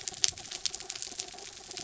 {"label": "anthrophony, mechanical", "recorder": "SoundTrap 300"}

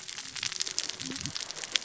{"label": "biophony, cascading saw", "recorder": "SoundTrap 600 or HydroMoth"}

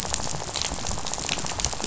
{"label": "biophony, rattle", "recorder": "SoundTrap 500"}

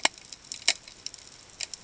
{"label": "ambient", "recorder": "HydroMoth"}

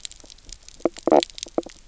{"label": "biophony, knock croak", "recorder": "SoundTrap 300"}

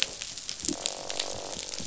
{"label": "biophony", "recorder": "SoundTrap 500"}
{"label": "biophony, croak", "recorder": "SoundTrap 500"}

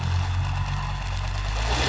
{"label": "anthrophony, boat engine", "recorder": "SoundTrap 500"}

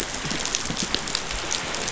{"label": "biophony", "recorder": "SoundTrap 500"}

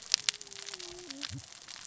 {"label": "biophony, cascading saw", "recorder": "SoundTrap 600 or HydroMoth"}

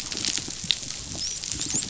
{"label": "biophony, dolphin", "recorder": "SoundTrap 500"}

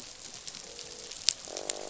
{"label": "biophony, croak", "recorder": "SoundTrap 500"}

